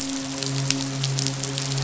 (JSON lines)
{"label": "biophony, midshipman", "recorder": "SoundTrap 500"}